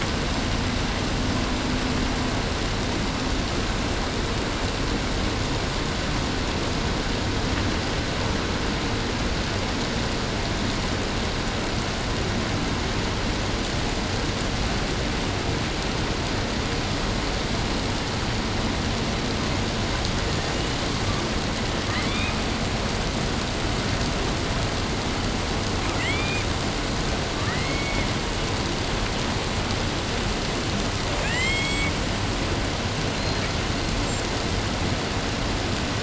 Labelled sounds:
20.1	21.1	killer whale, 0.61 to 8.0 kHz
21.9	22.5	killer whale, 0.63 to 6.7 kHz
25.9	26.6	killer whale, southern resident, 1.1 to 8.0 kHz
27.3	28.2	killer whale, southern resident, 0.72 to 7.0 kHz
30.9	32.0	killer whale, southern resident, 0.95 to 8.0 kHz
33.1	34.3	killer whale, southern resident, 0.77 to 8.0 kHz

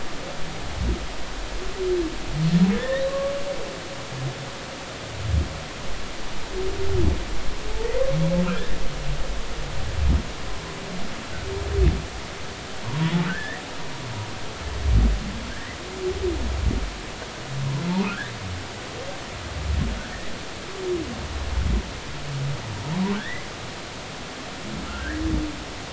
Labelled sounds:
2.7	3.3	humpback whale, 1.0 to 2.0 kHz
12.8	13.6	humpback whale, 0.90 to 2.0 kHz
15.5	15.8	humpback whale, 1.5 to 2.1 kHz
18.1	18.3	humpback whale, 1.3 to 1.9 kHz
23.2	23.4	humpback whale, 1.5 to 2.1 kHz
24.9	25.2	humpback whale, 1.2 to 2.0 kHz

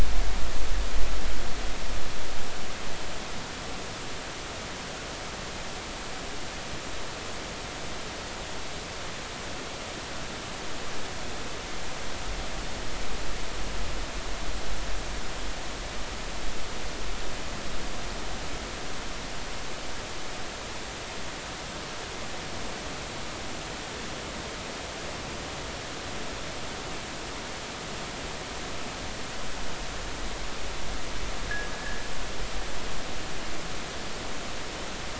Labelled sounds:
31.7	32.0	fishing gear, 1.6 to 1.8 kHz

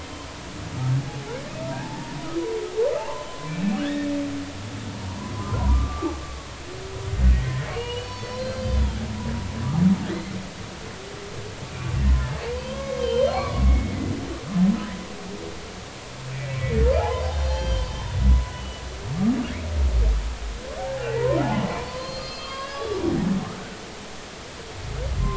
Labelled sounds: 1.6	2.2	humpback whale, 0.80 to 0.99 kHz
3.0	4.1	humpback whale, 0.83 to 3.1 kHz
5.0	6.1	humpback whale, 0.90 to 1.3 kHz
7.3	9.0	humpback whale, 1.7 to 5.6 kHz
10.1	10.3	humpback whale, 1.9 to 2.2 kHz
12.0	13.9	humpback whale, 0.96 to 4.4 kHz
16.3	16.6	humpback whale, 2.2 to 2.4 kHz
17.0	17.9	humpback whale, 0.80 to 5.8 kHz
18.5	18.8	humpback whale, 2.9 to 3.0 kHz
21.0	23.0	humpback whale, 0.80 to 5.2 kHz

